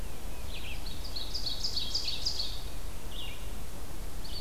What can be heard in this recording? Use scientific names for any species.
Vireo olivaceus, Seiurus aurocapilla